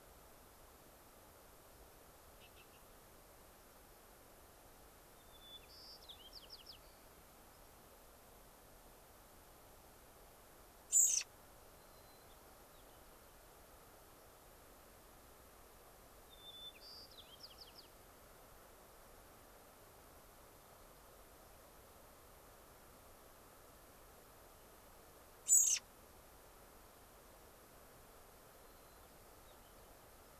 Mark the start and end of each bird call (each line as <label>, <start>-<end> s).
White-crowned Sparrow (Zonotrichia leucophrys), 5.2-7.1 s
unidentified bird, 7.5-7.6 s
American Robin (Turdus migratorius), 10.9-11.3 s
White-crowned Sparrow (Zonotrichia leucophrys), 11.8-13.4 s
White-crowned Sparrow (Zonotrichia leucophrys), 16.3-17.9 s
American Robin (Turdus migratorius), 25.5-25.8 s
White-crowned Sparrow (Zonotrichia leucophrys), 28.6-30.1 s